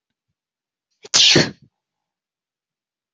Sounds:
Sneeze